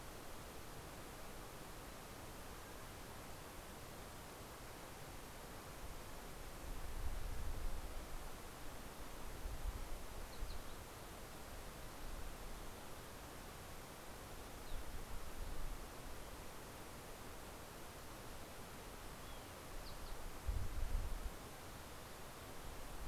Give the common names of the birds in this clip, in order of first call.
Fox Sparrow